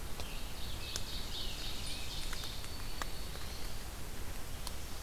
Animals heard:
Scarlet Tanager (Piranga olivacea)
Black-throated Green Warbler (Setophaga virens)
Ovenbird (Seiurus aurocapilla)

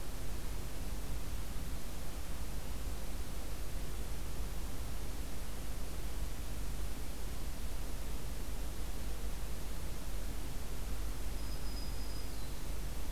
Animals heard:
Black-throated Green Warbler (Setophaga virens)

